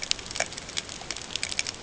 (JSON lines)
{"label": "ambient", "recorder": "HydroMoth"}